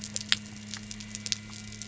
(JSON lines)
{"label": "anthrophony, boat engine", "recorder": "SoundTrap 300"}